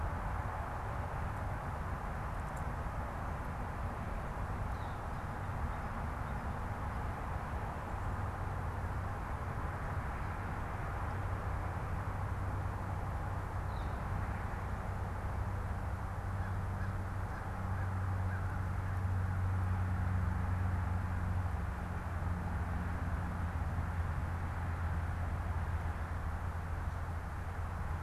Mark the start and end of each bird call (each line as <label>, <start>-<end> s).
Northern Flicker (Colaptes auratus), 4.5-5.0 s
Northern Flicker (Colaptes auratus), 13.6-13.9 s